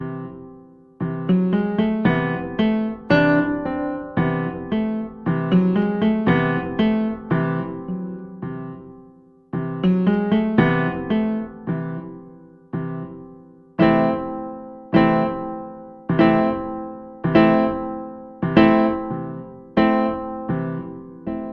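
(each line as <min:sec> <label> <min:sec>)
0:00.0 A minimalist piano melody unfolds, beginning with a soft progression and ending with deliberate imperfections and a low, cinematic tone. 0:21.5
0:01.0 A piano plays rhythmic, cinematic music. 0:08.7
0:09.5 Piano music playing a repeated tune. 0:12.2
0:12.7 The piano music ends with a classic stop. 0:21.3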